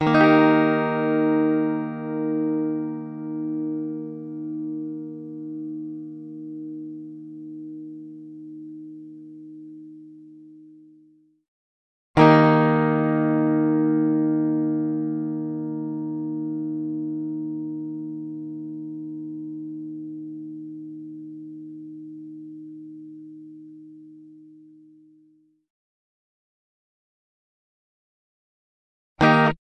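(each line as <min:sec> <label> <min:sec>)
0:00.0 An electric Telecaster guitar strums, gradually decreasing in intensity. 0:11.3
0:12.1 An electric Telecaster guitar strums, gradually decreasing in intensity. 0:25.7
0:29.1 A short strum of an electric guitar. 0:29.7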